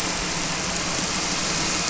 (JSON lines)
{"label": "anthrophony, boat engine", "recorder": "SoundTrap 300"}